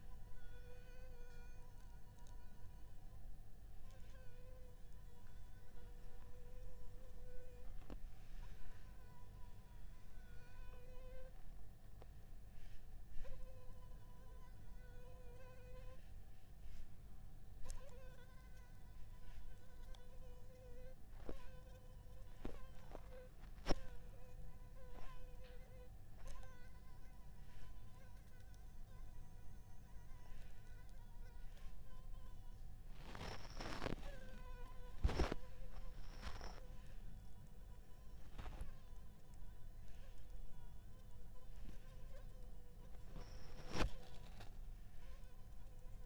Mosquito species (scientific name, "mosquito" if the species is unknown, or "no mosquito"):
Anopheles arabiensis